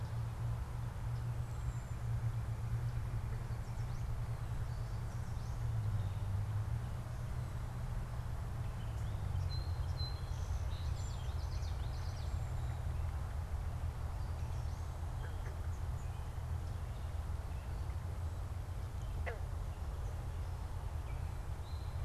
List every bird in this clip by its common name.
Cedar Waxwing, Song Sparrow, Common Yellowthroat